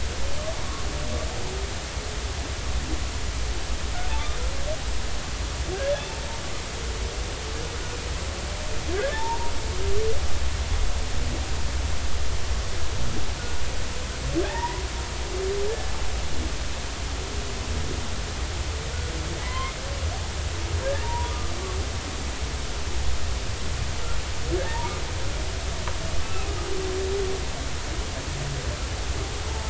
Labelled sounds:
5.7	6.2	humpback whale, 1.5 to 2.8 kHz
9.0	9.5	humpback whale, 0.83 to 1.8 kHz
14.4	14.8	humpback whale, 0.80 to 2.1 kHz
15.7	15.9	humpback whale, 1.6 to 1.8 kHz
19.4	19.7	humpback whale, 0.96 to 2.2 kHz
21.0	21.5	humpback whale, 0.86 to 1.4 kHz
24.6	24.9	humpback whale, 0.83 to 1.0 kHz
26.2	26.5	humpback whale, 2.5 to 2.7 kHz

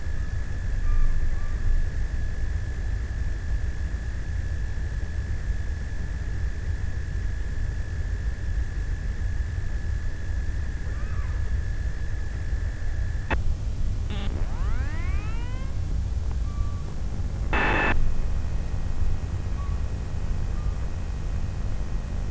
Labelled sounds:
0.0	3.1	killer whale, offshore, 0.73 to 1.5 kHz
10.2	11.9	killer whale, offshore, 0.14 to 2.6 kHz
16.1	17.3	killer whale, offshore, 0.56 to 1.4 kHz
19.2	21.8	killer whale, offshore, 0.46 to 1.6 kHz

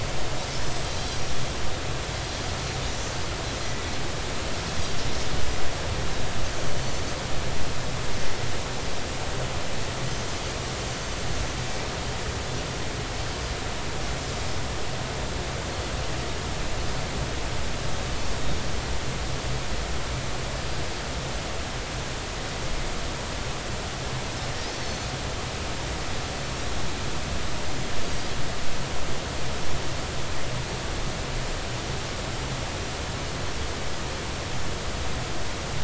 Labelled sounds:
1.1	1.4	Pacific white-sided dolphin, 5.6 to 6.0 kHz

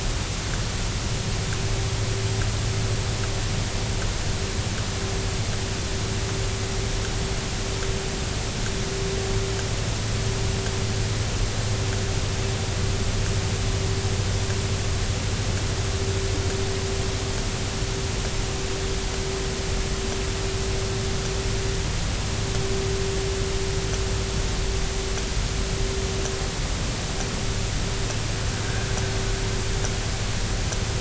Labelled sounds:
28.6	28.9	vessel noise, 1.5 to 1.7 kHz

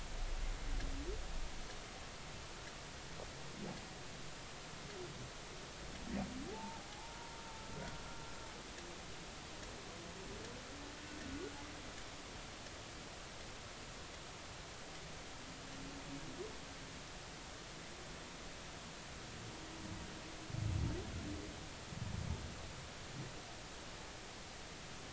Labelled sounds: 6.5	7.3	humpback whale, 0.80 to 0.99 kHz
7.7	8.0	humpback whale, 1.3 to 1.6 kHz
11.2	11.5	humpback whale, 1.4 to 1.5 kHz

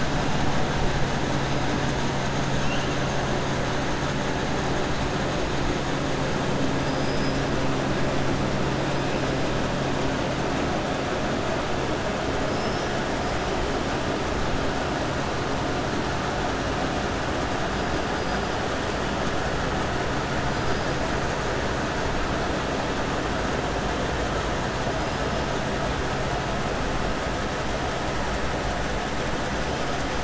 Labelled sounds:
2.5	2.9	killer whale, 2.6 to 3.9 kHz
6.8	7.4	killer whale, 4.8 to 5.7 kHz
12.4	12.9	killer whale, 5.1 to 5.9 kHz

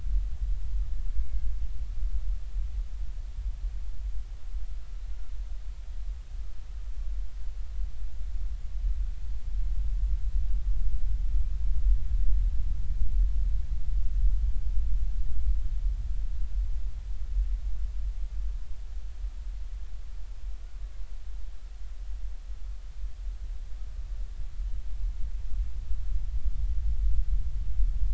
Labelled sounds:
1.2	1.4	killer whale, Bigg's (transient), 2.1 to 2.3 kHz

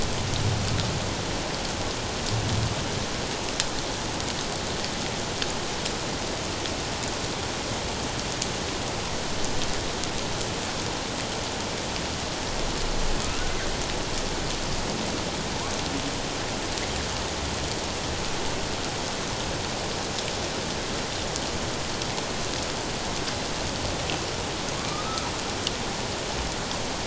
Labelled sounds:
13.2	13.5	humpback whale, 1.2 to 1.5 kHz
24.9	25.3	humpback whale, 1.1 to 1.4 kHz

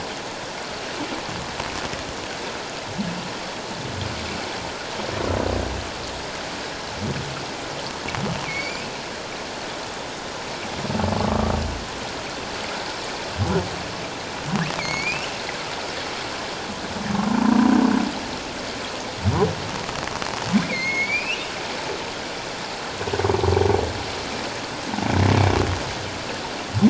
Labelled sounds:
8.4	9.0	humpback whale, 2.1 to 2.7 kHz
11.2	11.5	humpback whale, 1.1 to 1.3 kHz
14.8	15.3	humpback whale, 2.1 to 4.5 kHz
17.1	17.7	humpback whale, 0.91 to 1.2 kHz
20.6	21.5	humpback whale, 2.0 to 6.6 kHz

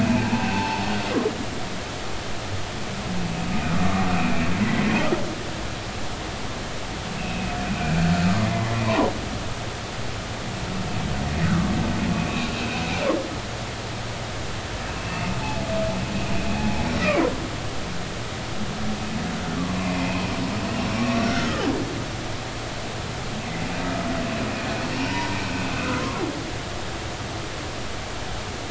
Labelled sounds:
0.0	0.8	humpback whale, 0.80 to 2.6 kHz
3.8	4.9	humpback whale, 1.1 to 2.6 kHz
7.2	9.1	humpback whale, 0.90 to 2.8 kHz
11.5	11.7	humpback whale, 1.1 to 1.6 kHz
12.1	12.8	humpback whale, 2.3 to 2.7 kHz
15.0	15.7	humpback whale, 0.80 to 2.8 kHz
19.8	20.3	humpback whale, 2.3 to 2.7 kHz
21.1	21.6	humpback whale, 1.2 to 5.7 kHz
24.9	25.4	humpback whale, 0.86 to 3.0 kHz
26.0	26.2	humpback whale, 0.99 to 1.1 kHz

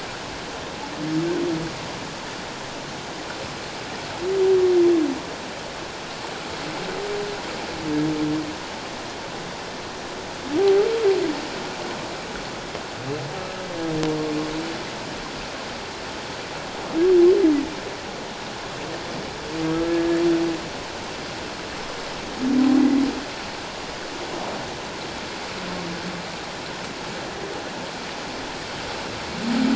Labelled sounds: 10.6	10.9	humpback whale, 0.78 to 0.84 kHz

